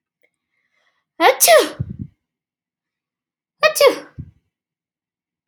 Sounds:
Sneeze